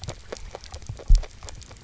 {"label": "biophony, grazing", "recorder": "SoundTrap 300"}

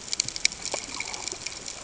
{"label": "ambient", "recorder": "HydroMoth"}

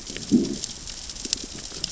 {"label": "biophony, growl", "recorder": "SoundTrap 600 or HydroMoth"}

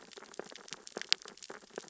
{"label": "biophony, sea urchins (Echinidae)", "recorder": "SoundTrap 600 or HydroMoth"}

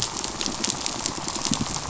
{"label": "biophony, pulse", "recorder": "SoundTrap 500"}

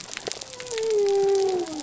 {"label": "biophony", "recorder": "SoundTrap 300"}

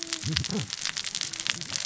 {"label": "biophony, cascading saw", "recorder": "SoundTrap 600 or HydroMoth"}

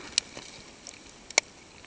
{"label": "ambient", "recorder": "HydroMoth"}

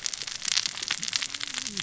{"label": "biophony, cascading saw", "recorder": "SoundTrap 600 or HydroMoth"}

